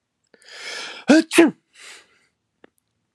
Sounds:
Sneeze